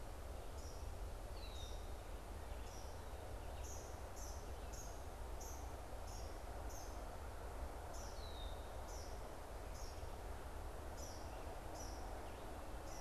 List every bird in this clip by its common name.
Eastern Kingbird, Red-winged Blackbird, Red-eyed Vireo